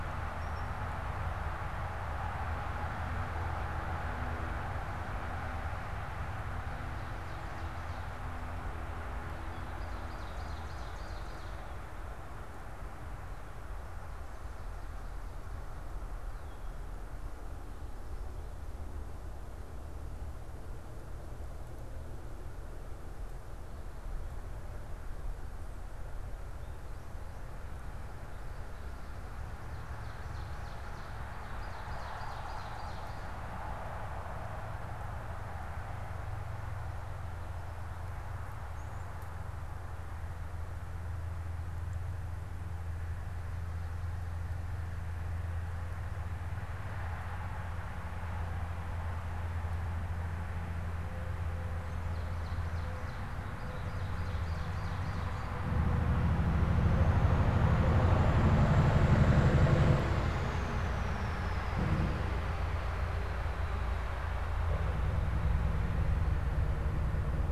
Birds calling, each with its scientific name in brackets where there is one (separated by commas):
Ovenbird (Seiurus aurocapilla), unidentified bird